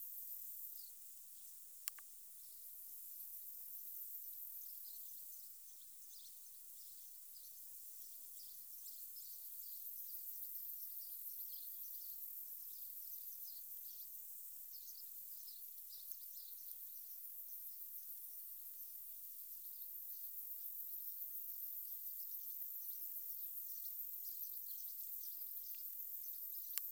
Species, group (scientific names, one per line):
Metaplastes ornatus
Orthoptera